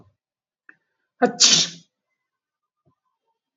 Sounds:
Sneeze